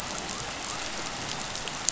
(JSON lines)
{"label": "biophony", "recorder": "SoundTrap 500"}